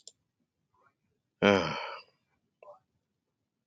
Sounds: Sigh